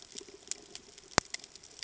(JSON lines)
{"label": "ambient", "recorder": "HydroMoth"}